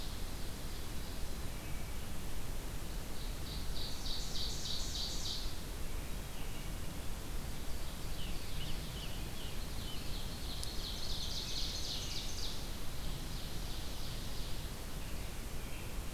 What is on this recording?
Ovenbird, Scarlet Tanager, American Robin